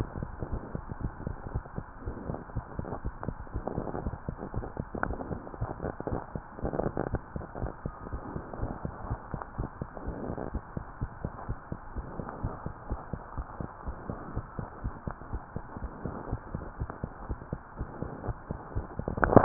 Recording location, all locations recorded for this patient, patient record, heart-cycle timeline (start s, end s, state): mitral valve (MV)
aortic valve (AV)+pulmonary valve (PV)+tricuspid valve (TV)+mitral valve (MV)
#Age: Child
#Sex: Female
#Height: 99.0 cm
#Weight: 16.0 kg
#Pregnancy status: False
#Murmur: Absent
#Murmur locations: nan
#Most audible location: nan
#Systolic murmur timing: nan
#Systolic murmur shape: nan
#Systolic murmur grading: nan
#Systolic murmur pitch: nan
#Systolic murmur quality: nan
#Diastolic murmur timing: nan
#Diastolic murmur shape: nan
#Diastolic murmur grading: nan
#Diastolic murmur pitch: nan
#Diastolic murmur quality: nan
#Outcome: Abnormal
#Campaign: 2015 screening campaign
0.00	10.54	unannotated
10.54	10.64	S1
10.64	10.74	systole
10.74	10.86	S2
10.86	11.00	diastole
11.00	11.10	S1
11.10	11.22	systole
11.22	11.32	S2
11.32	11.48	diastole
11.48	11.58	S1
11.58	11.70	systole
11.70	11.80	S2
11.80	11.94	diastole
11.94	12.06	S1
12.06	12.16	systole
12.16	12.26	S2
12.26	12.42	diastole
12.42	12.54	S1
12.54	12.64	systole
12.64	12.74	S2
12.74	12.88	diastole
12.88	13.00	S1
13.00	13.10	systole
13.10	13.20	S2
13.20	13.34	diastole
13.34	13.46	S1
13.46	13.56	systole
13.56	13.68	S2
13.68	13.84	diastole
13.84	13.96	S1
13.96	14.06	systole
14.06	14.20	S2
14.20	14.34	diastole
14.34	14.46	S1
14.46	14.56	systole
14.56	14.66	S2
14.66	14.82	diastole
14.82	14.94	S1
14.94	15.06	systole
15.06	15.16	S2
15.16	15.30	diastole
15.30	15.42	S1
15.42	15.54	systole
15.54	15.64	S2
15.64	15.80	diastole
15.80	15.92	S1
15.92	16.02	systole
16.02	16.14	S2
16.14	16.30	diastole
16.30	16.40	S1
16.40	16.52	systole
16.52	16.62	S2
16.62	16.78	diastole
16.78	16.90	S1
16.90	17.02	systole
17.02	17.12	S2
17.12	17.26	diastole
17.26	17.38	S1
17.38	17.48	systole
17.48	17.60	S2
17.60	17.78	diastole
17.78	17.88	S1
17.88	18.00	systole
18.00	18.10	S2
18.10	18.26	diastole
18.26	18.38	S1
18.38	18.48	systole
18.48	18.62	S2
18.62	18.76	diastole
18.76	19.44	unannotated